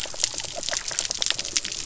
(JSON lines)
{"label": "biophony", "recorder": "SoundTrap 300"}